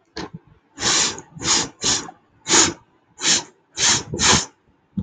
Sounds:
Sniff